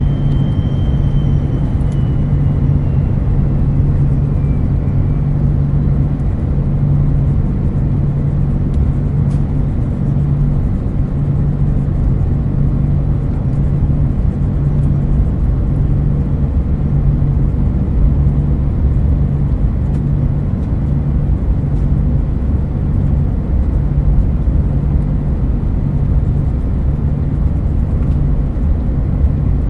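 A loud airplane engine continuously resonates. 0:00.0 - 0:29.7

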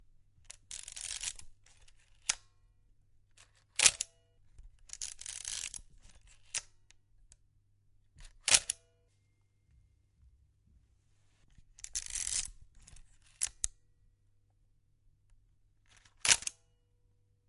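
Precise movements of an antique film camera, including manual adjustments of the metal lens, iris, and advance lever. 0:00.0 - 0:03.6
Sharp mechanical shutter click of a vintage 35mm SLR camera. 0:03.6 - 0:04.5
Precise movements of an antique film camera with manual adjustments of the metal lens, iris, and advance lever. 0:04.6 - 0:08.4
Sharp mechanical shutter click of a vintage 35mm SLR camera. 0:08.4 - 0:09.2
Precise manual adjustments of an antique film camera's metal lens, iris, and advance lever. 0:09.2 - 0:16.2
Sharp mechanical shutter click of a vintage 35mm SLR camera. 0:16.3 - 0:17.4

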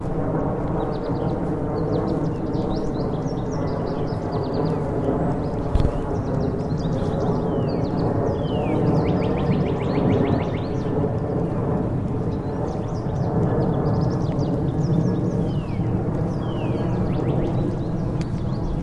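Footsteps on grass, birds chirping, and a distant hum of flight create a peaceful and layered natural atmosphere. 0:00.1 - 0:18.6

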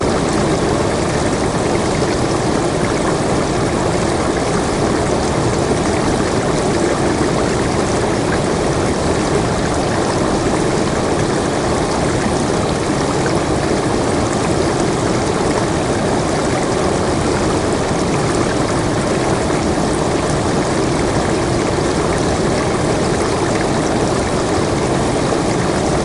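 A large river flows down a slope. 0:00.0 - 0:26.0

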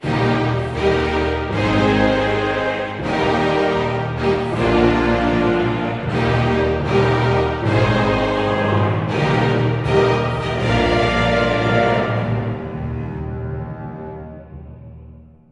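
An orchestral fanfare with layered instruments and choir voices ends with a fading string section. 0:00.0 - 0:15.5

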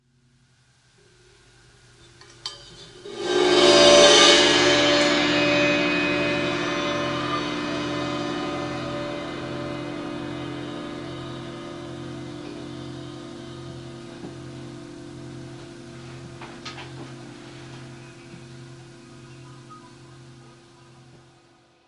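A metallic gong gradually fades and echoes away. 0:03.0 - 0:14.2

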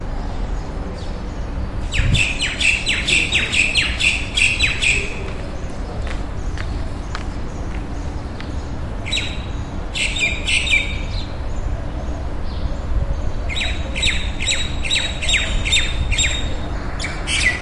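Background rustling outside with distant, quiet bird chirping. 0:00.0 - 0:01.9
A bird chirps repeatedly outside. 0:01.9 - 0:05.1
Background rustling outside with distant, quiet bird chirping. 0:05.1 - 0:09.1
A bird chirps. 0:09.1 - 0:09.3
A bird chirps. 0:10.0 - 0:10.9
Background rustling outside with distant, quiet bird chirping. 0:10.9 - 0:13.5
A bird chirps. 0:13.5 - 0:16.5
Background rustling outside with distant, quiet bird chirping. 0:16.5 - 0:17.3
A bird chirps. 0:17.3 - 0:17.6

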